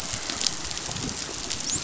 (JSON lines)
{"label": "biophony, dolphin", "recorder": "SoundTrap 500"}